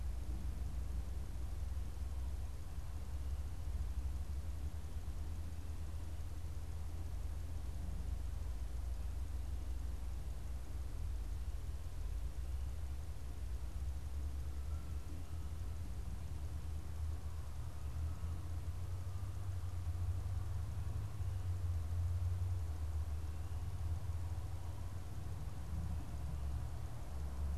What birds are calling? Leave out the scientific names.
Canada Goose